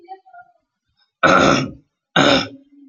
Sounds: Throat clearing